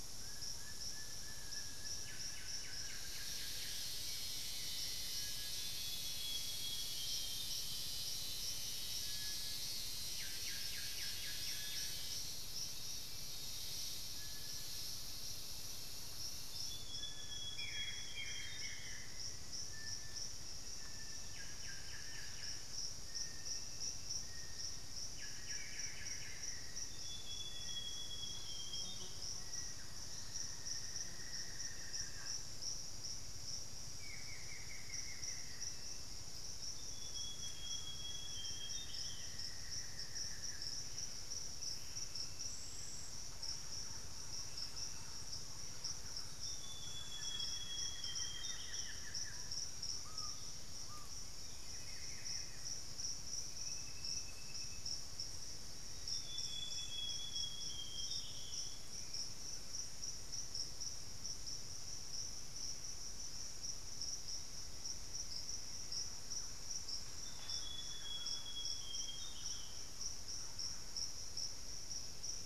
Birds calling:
unidentified bird
Buff-throated Woodcreeper (Xiphorhynchus guttatus)
Plain-winged Antshrike (Thamnophilus schistaceus)
Little Tinamou (Crypturellus soui)
Screaming Piha (Lipaugus vociferans)
Solitary Black Cacique (Cacicus solitarius)
Thrush-like Wren (Campylorhynchus turdinus)
Amazonian Grosbeak (Cyanoloxia rothschildii)

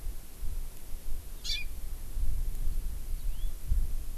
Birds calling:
Yellow-fronted Canary (Crithagra mozambica)
Hawaii Amakihi (Chlorodrepanis virens)

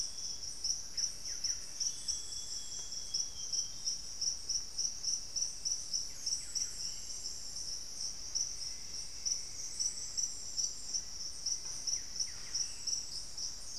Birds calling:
Amazonian Grosbeak (Cyanoloxia rothschildii)
Buff-breasted Wren (Cantorchilus leucotis)
Black-faced Antthrush (Formicarius analis)
unidentified bird

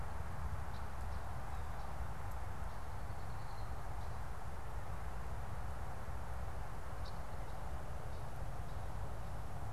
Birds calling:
Red-winged Blackbird (Agelaius phoeniceus)

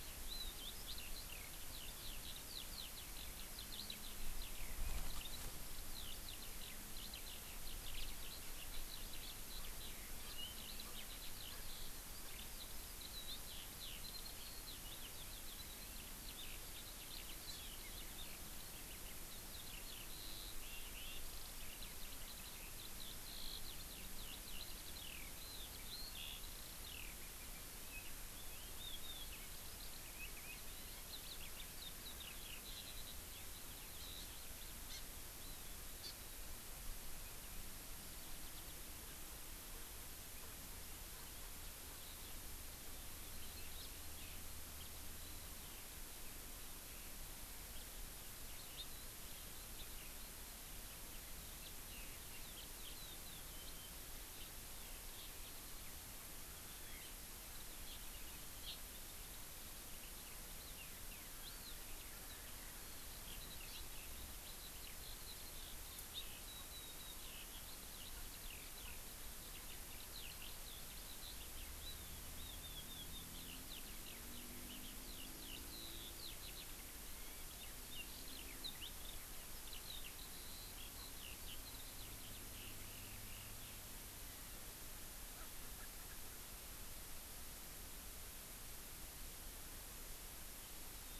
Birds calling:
Hawaii Amakihi (Chlorodrepanis virens)
Eurasian Skylark (Alauda arvensis)
Warbling White-eye (Zosterops japonicus)

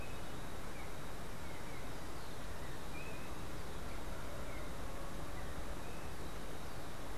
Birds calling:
Yellow-backed Oriole (Icterus chrysater)

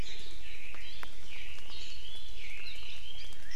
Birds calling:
Chinese Hwamei (Garrulax canorus)

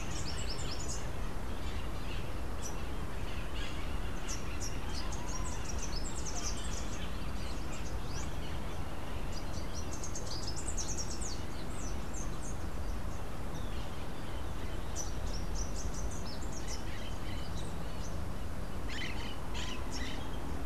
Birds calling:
Crimson-fronted Parakeet (Psittacara finschi)
Rufous-capped Warbler (Basileuterus rufifrons)

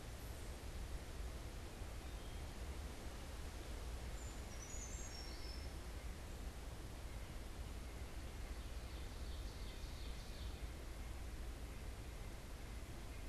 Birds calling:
Ovenbird (Seiurus aurocapilla)
Brown Creeper (Certhia americana)
White-breasted Nuthatch (Sitta carolinensis)

